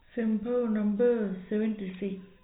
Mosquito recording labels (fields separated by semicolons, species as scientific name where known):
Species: no mosquito; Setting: cup